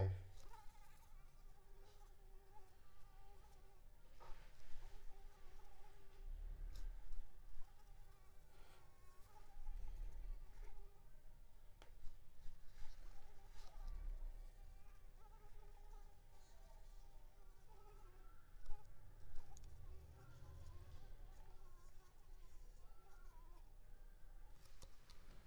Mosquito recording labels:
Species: Anopheles arabiensis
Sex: female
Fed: unfed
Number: one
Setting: cup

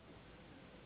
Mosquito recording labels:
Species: Anopheles gambiae s.s.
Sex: female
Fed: unfed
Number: one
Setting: insect culture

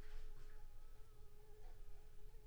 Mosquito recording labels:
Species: Anopheles squamosus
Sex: female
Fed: unfed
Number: one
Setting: cup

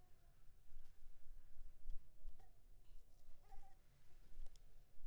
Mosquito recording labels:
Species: Anopheles coustani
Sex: female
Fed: blood-fed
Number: one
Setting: cup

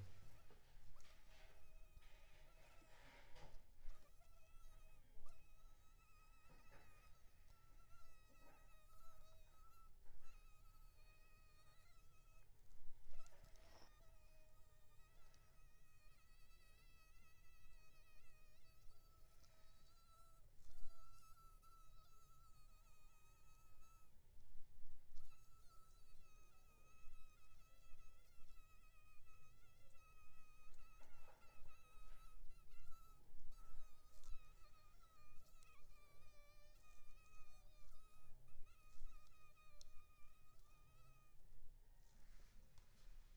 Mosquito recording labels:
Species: Anopheles arabiensis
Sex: male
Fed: unfed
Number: one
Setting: cup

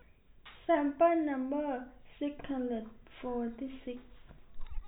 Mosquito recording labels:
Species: no mosquito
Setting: cup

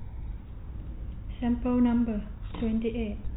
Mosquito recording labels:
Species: no mosquito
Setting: cup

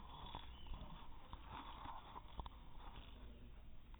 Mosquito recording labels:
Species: no mosquito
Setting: cup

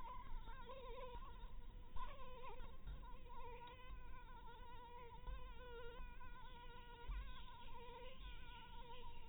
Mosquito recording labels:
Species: Anopheles maculatus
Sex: female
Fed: blood-fed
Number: one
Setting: cup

